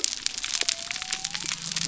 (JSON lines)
{"label": "biophony", "recorder": "SoundTrap 300"}